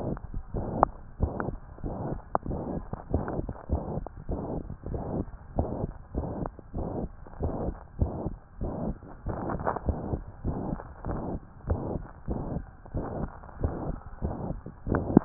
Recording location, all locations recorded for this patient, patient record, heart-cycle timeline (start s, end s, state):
tricuspid valve (TV)
aortic valve (AV)+pulmonary valve (PV)+tricuspid valve (TV)+mitral valve (MV)
#Age: Child
#Sex: Female
#Height: 128.0 cm
#Weight: 26.8 kg
#Pregnancy status: False
#Murmur: Present
#Murmur locations: aortic valve (AV)+mitral valve (MV)+pulmonary valve (PV)+tricuspid valve (TV)
#Most audible location: tricuspid valve (TV)
#Systolic murmur timing: Holosystolic
#Systolic murmur shape: Plateau
#Systolic murmur grading: II/VI
#Systolic murmur pitch: Medium
#Systolic murmur quality: Harsh
#Diastolic murmur timing: nan
#Diastolic murmur shape: nan
#Diastolic murmur grading: nan
#Diastolic murmur pitch: nan
#Diastolic murmur quality: nan
#Outcome: Abnormal
#Campaign: 2015 screening campaign
0.00	0.52	unannotated
0.52	0.66	S1
0.66	0.74	systole
0.74	0.90	S2
0.90	1.22	diastole
1.22	1.34	S1
1.34	1.46	systole
1.46	1.58	S2
1.58	1.84	diastole
1.84	1.96	S1
1.96	2.02	systole
2.02	2.16	S2
2.16	2.50	diastole
2.50	2.66	S1
2.66	2.74	systole
2.74	2.86	S2
2.86	3.12	diastole
3.12	3.26	S1
3.26	3.34	systole
3.34	3.48	S2
3.48	3.72	diastole
3.72	3.84	S1
3.84	3.90	systole
3.90	4.02	S2
4.02	4.30	diastole
4.30	4.44	S1
4.44	4.50	systole
4.50	4.62	S2
4.62	4.88	diastole
4.88	5.02	S1
5.02	5.10	systole
5.10	5.26	S2
5.26	5.56	diastole
5.56	5.70	S1
5.70	5.80	systole
5.80	5.88	S2
5.88	6.16	diastole
6.16	6.30	S1
6.30	6.36	systole
6.36	6.48	S2
6.48	6.76	diastole
6.76	6.88	S1
6.88	6.96	systole
6.96	7.10	S2
7.10	7.42	diastole
7.42	7.56	S1
7.56	7.64	systole
7.64	7.78	S2
7.78	8.02	diastole
8.02	8.18	S1
8.18	8.24	systole
8.24	8.34	S2
8.34	8.62	diastole
8.62	8.74	S1
8.74	8.80	systole
8.80	8.96	S2
8.96	9.28	diastole
9.28	9.40	S1
9.40	9.48	systole
9.48	9.62	S2
9.62	9.86	diastole
9.86	10.02	S1
10.02	10.10	systole
10.10	10.20	S2
10.20	10.46	diastole
10.46	10.58	S1
10.58	10.64	systole
10.64	10.80	S2
10.80	11.08	diastole
11.08	11.22	S1
11.22	11.28	systole
11.28	11.42	S2
11.42	11.68	diastole
11.68	11.84	S1
11.84	11.92	systole
11.92	12.02	S2
12.02	12.30	diastole
12.30	12.42	S1
12.42	12.50	systole
12.50	12.64	S2
12.64	12.93	diastole
12.93	13.06	S1
13.06	13.16	systole
13.16	13.30	S2
13.30	13.62	diastole
13.62	13.78	S1
13.78	13.86	systole
13.86	13.96	S2
13.96	14.20	diastole
14.20	14.38	S1
14.38	14.44	systole
14.44	14.58	S2
14.58	14.87	diastole
14.87	15.25	unannotated